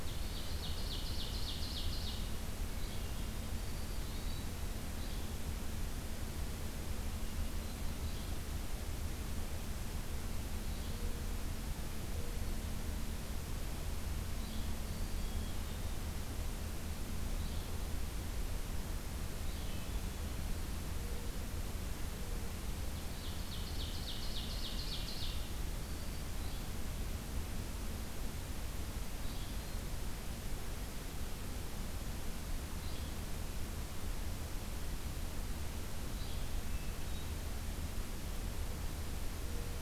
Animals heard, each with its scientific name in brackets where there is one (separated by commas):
Ovenbird (Seiurus aurocapilla), Hermit Thrush (Catharus guttatus), Mourning Dove (Zenaida macroura), Black-throated Green Warbler (Setophaga virens), Yellow-bellied Flycatcher (Empidonax flaviventris)